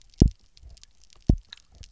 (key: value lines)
label: biophony, double pulse
recorder: SoundTrap 300